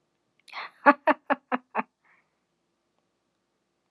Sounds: Laughter